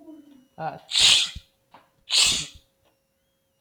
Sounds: Sneeze